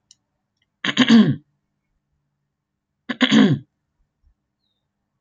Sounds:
Throat clearing